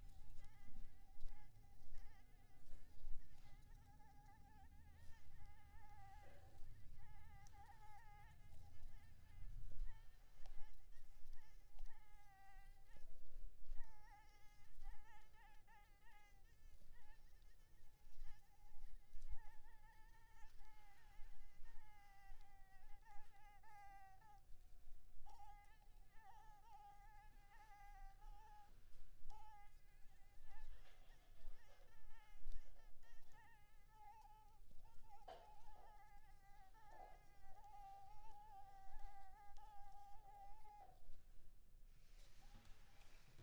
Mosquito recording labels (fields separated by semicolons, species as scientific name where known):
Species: Anopheles maculipalpis; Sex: female; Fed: unfed; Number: one; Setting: cup